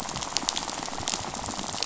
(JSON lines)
{"label": "biophony, rattle", "recorder": "SoundTrap 500"}